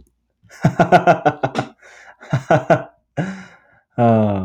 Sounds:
Laughter